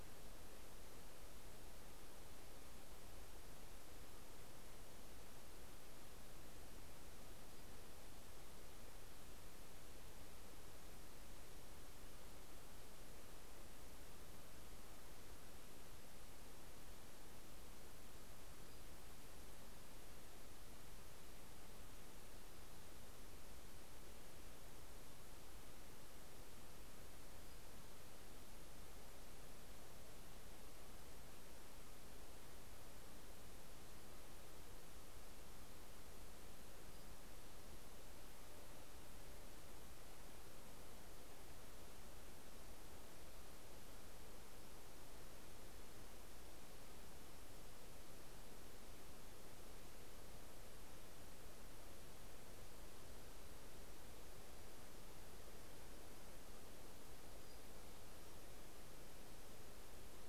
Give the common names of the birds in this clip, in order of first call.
Pacific-slope Flycatcher